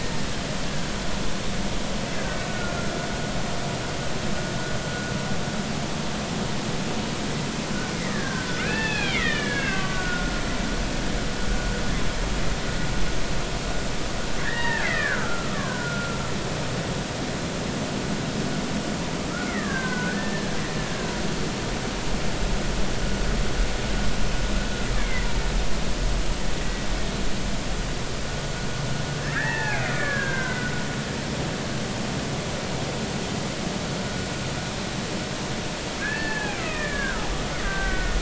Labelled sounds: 2.5	2.9	killer whale, Bigg's (transient), 1.3 to 1.5 kHz
8.1	10.3	killer whale, Bigg's (transient), 1.1 to 3.6 kHz
14.4	16.2	killer whale, Bigg's (transient), 0.86 to 3.8 kHz
19.3	20.6	killer whale, Bigg's (transient), 0.96 to 2.2 kHz
25.0	25.3	killer whale, Bigg's (transient), 1.9 to 2.3 kHz
26.6	26.9	killer whale, Bigg's (transient), 1.9 to 2.0 kHz
29.2	30.7	killer whale, Bigg's (transient), 0.80 to 2.6 kHz
36.0	38.1	killer whale, Bigg's (transient), 1.1 to 2.7 kHz

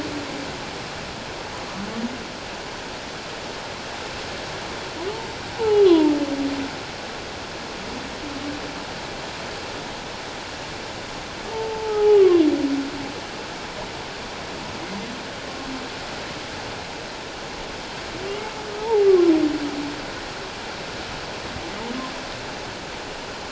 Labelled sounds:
5.5	6.1	humpback whale, 0.78 to 1.2 kHz
11.5	12.4	humpback whale, 0.78 to 1.2 kHz
18.8	19.3	humpback whale, 0.78 to 1.2 kHz

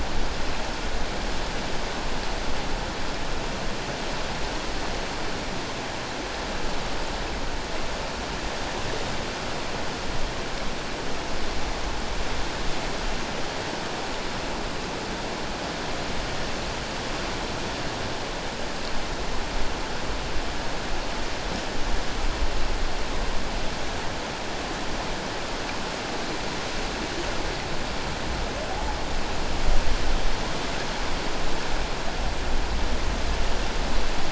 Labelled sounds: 28.7	29.0	humpback whale, 0.78 to 0.94 kHz

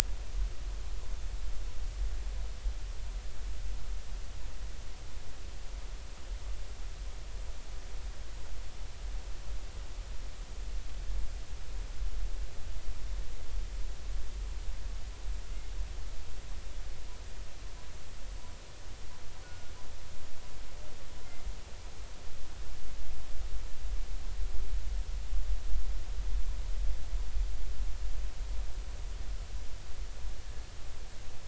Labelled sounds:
19.4	19.7	killer whale, northern resident, G clan, call N24ii, 1.4 to 1.5 kHz

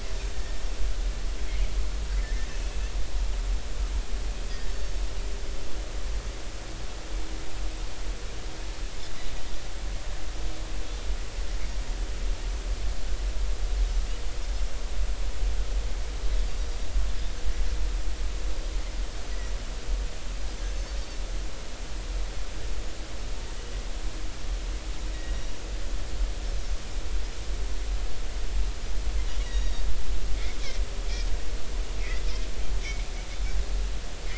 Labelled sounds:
0.3	0.6	Pacific white-sided dolphin, 1.7 to 1.9 kHz
2.2	2.5	Pacific white-sided dolphin, 1.7 to 1.9 kHz
25.1	25.4	Pacific white-sided dolphin, 1.8 to 2.0 kHz
29.4	29.8	Pacific white-sided dolphin, 3.7 to 5.8 kHz

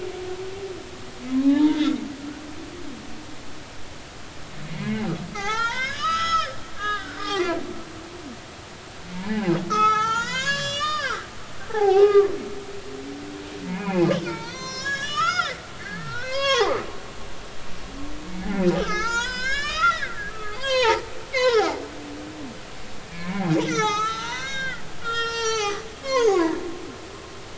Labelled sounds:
1.4	2.0	humpback whale, 0.80 to 3.9 kHz
4.6	5.1	humpback whale, 1.9 to 2.3 kHz
5.3	7.6	humpback whale, 0.80 to 6.7 kHz
9.1	12.3	humpback whale, 0.80 to 7.6 kHz
13.7	16.9	humpback whale, 0.80 to 7.4 kHz
18.4	21.0	humpback whale, 0.80 to 7.7 kHz
21.3	21.9	humpback whale, 1.2 to 5.3 kHz
23.1	26.6	humpback whale, 0.80 to 7.9 kHz

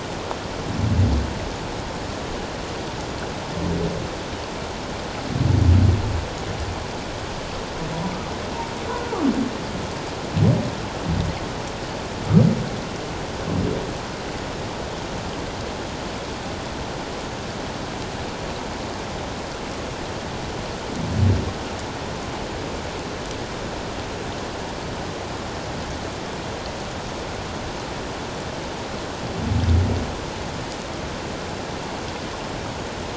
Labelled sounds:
8.9	9.2	humpback whale, 1.1 to 1.5 kHz

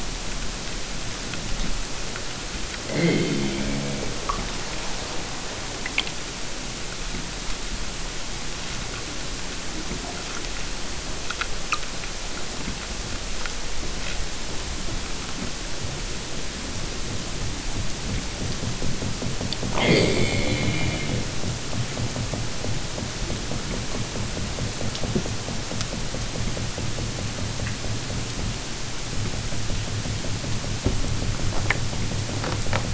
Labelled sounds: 2.9	4.1	killer whale, southern Alaska resident, 0.28 to 5.0 kHz
19.7	21.2	killer whale, southern Alaska resident, 0.32 to 8.0 kHz

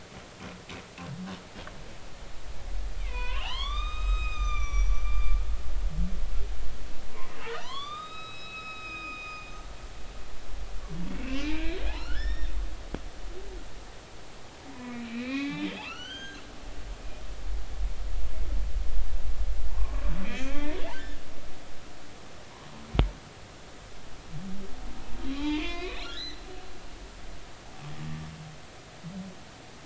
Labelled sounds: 3.0	5.4	humpback whale, 0.80 to 7.6 kHz
7.3	9.5	humpback whale, 0.86 to 5.2 kHz
11.1	12.5	humpback whale, 1.3 to 5.6 kHz
14.7	16.4	humpback whale, 1.0 to 6.6 kHz
19.7	20.8	humpback whale, 0.83 to 2.7 kHz
25.3	26.4	humpback whale, 0.83 to 5.1 kHz

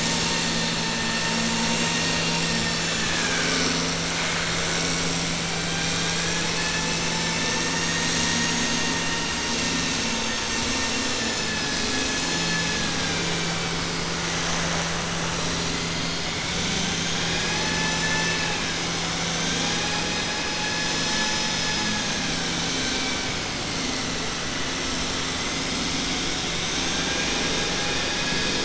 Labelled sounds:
11.6	13.5	vessel noise, 0.83 to 7.0 kHz
17.0	18.6	vessel noise, 0.85 to 7.0 kHz
26.9	27.6	vessel noise, 0.90 to 2.9 kHz

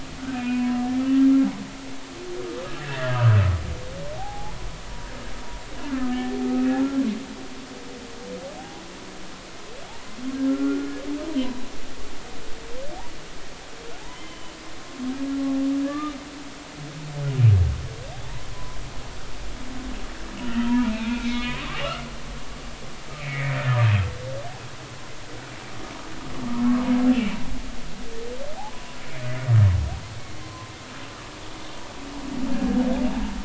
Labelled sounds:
0.3	0.8	humpback whale, 0.96 to 2.8 kHz
3.8	4.6	humpback whale, 0.80 to 2.0 kHz
5.9	6.8	humpback whale, 1.2 to 2.6 kHz
8.6	8.8	humpback whale, 0.80 to 0.86 kHz
10.5	10.9	humpback whale, 1.3 to 1.4 kHz
14.1	14.6	humpback whale, 0.96 to 3.2 kHz
15.8	16.1	humpback whale, 1.1 to 1.3 kHz
18.2	18.8	humpback whale, 0.83 to 1.1 kHz
20.4	22.0	humpback whale, 0.83 to 3.7 kHz
23.2	23.6	humpback whale, 1.7 to 2.6 kHz
28.7	29.0	humpback whale, 0.96 to 1.1 kHz
30.4	30.7	humpback whale, 0.96 to 1.1 kHz
32.5	32.8	humpback whale, 1.6 to 1.7 kHz

